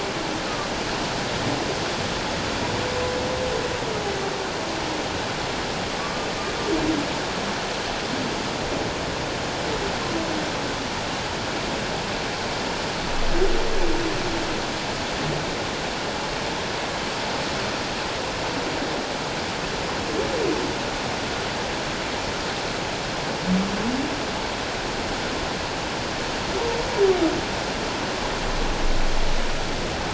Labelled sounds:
6.0	6.3	humpback whale, 1.1 to 1.2 kHz

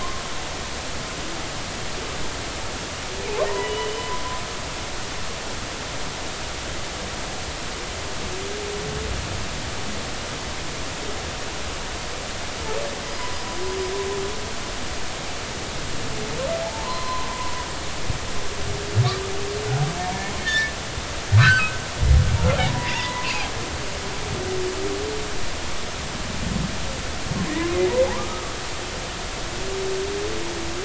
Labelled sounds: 3.5	4.1	humpback whale, 0.90 to 3.0 kHz
16.6	17.6	humpback whale, 0.80 to 4.2 kHz
20.4	20.7	humpback whale, 1.7 to 1.9 kHz
21.4	21.6	humpback whale, 0.99 to 1.9 kHz
22.7	23.3	humpback whale, 0.86 to 2.1 kHz
28.0	28.5	humpback whale, 0.80 to 1.3 kHz

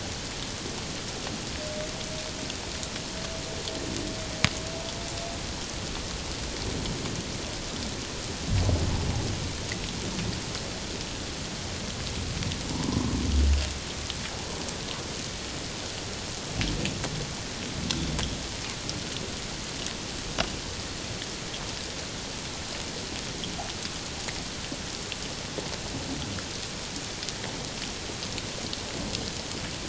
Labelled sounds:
12.7	13.2	humpback whale, 0.84 to 1.1 kHz

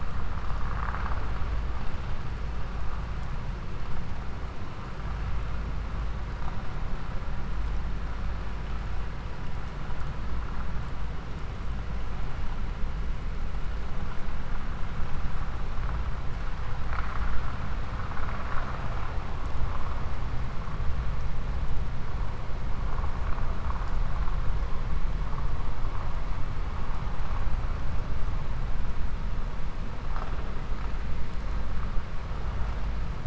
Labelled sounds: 0.5	1.3	vessel noise, 0.58 to 2.7 kHz

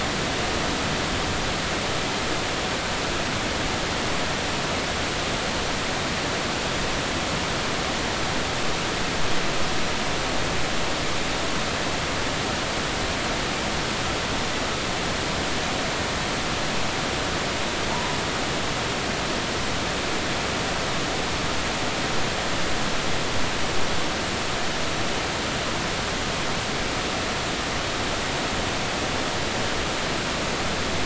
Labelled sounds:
17.9	18.2	humpback whale, 0.86 to 1.1 kHz

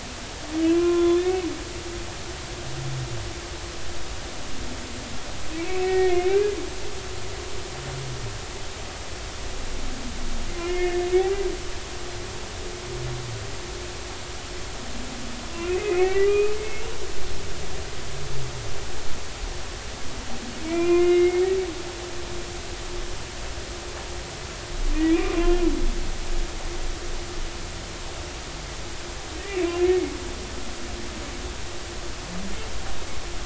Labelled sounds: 0.6	1.3	humpback whale, 0.96 to 3.7 kHz
5.8	6.3	humpback whale, 1.8 to 2.4 kHz
10.5	11.0	humpback whale, 1.7 to 2.2 kHz
15.6	16.9	humpback whale, 1.2 to 2.8 kHz
20.6	21.5	humpback whale, 0.96 to 2.9 kHz
25.4	25.6	humpback whale, 2.7 to 2.9 kHz

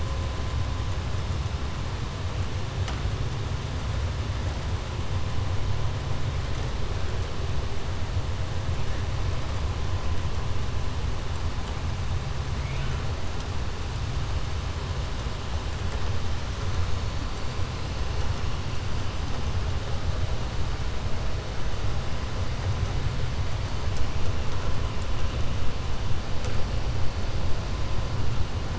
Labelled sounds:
12.5	13.0	killer whale, 1.4 to 3.5 kHz

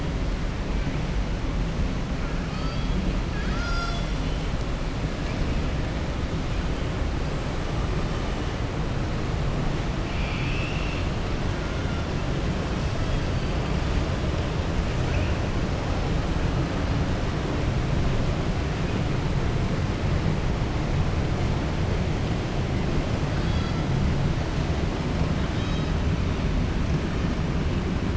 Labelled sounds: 10.0	11.1	killer whale, southern resident, 2.2 to 5.4 kHz

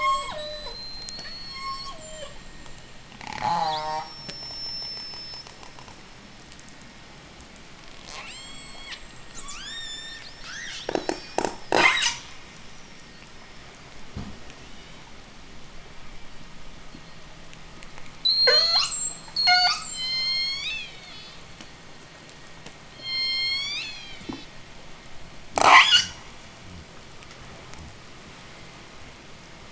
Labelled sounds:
0.3	2.0	killer whale, J pod, 3.6 to 8.0 kHz
1.5	2.4	killer whale, J pod, call S03, 0.40 to 8.0 kHz
3.1	4.2	killer whale, J pod, call S04, 0.08 to 8.0 kHz
3.6	5.7	killer whale, J pod, 3.0 to 8.0 kHz
8.0	12.2	killer whale, J pod, 0.08 to 8.0 kHz
18.1	20.1	killer whale, J pod, 0.15 to 8.0 kHz
20.0	21.7	killer whale, J pod, call S01, 1.8 to 8.0 kHz
23.0	24.6	killer whale, J pod, call S01, 0.76 to 8.0 kHz
25.4	26.1	killer whale, J pod, 0.06 to 8.0 kHz

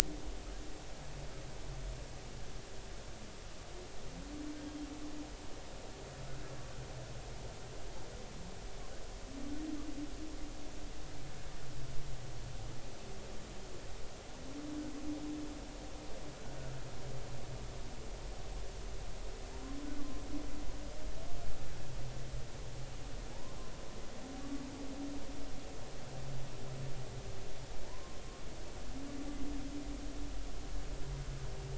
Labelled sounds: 27.8	28.2	humpback whale, 0.83 to 1.1 kHz

